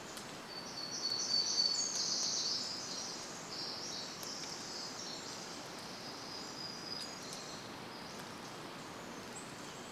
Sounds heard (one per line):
unidentified bird chip note
warbler song
Pacific Wren song